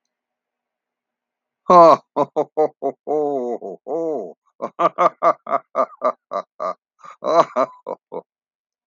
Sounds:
Laughter